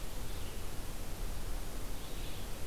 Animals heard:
Red-eyed Vireo (Vireo olivaceus)

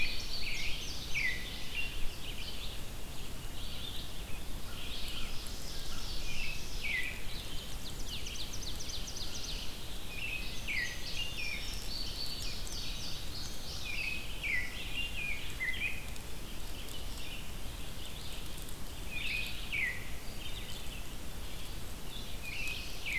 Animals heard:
American Robin (Turdus migratorius), Red-eyed Vireo (Vireo olivaceus), Indigo Bunting (Passerina cyanea), Ovenbird (Seiurus aurocapilla)

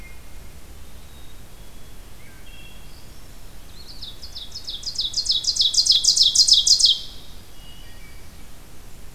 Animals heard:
Eastern Wood-Pewee (Contopus virens), Wood Thrush (Hylocichla mustelina), Ovenbird (Seiurus aurocapilla), Black-capped Chickadee (Poecile atricapillus)

